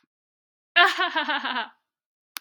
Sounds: Laughter